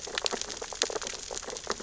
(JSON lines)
{"label": "biophony, sea urchins (Echinidae)", "recorder": "SoundTrap 600 or HydroMoth"}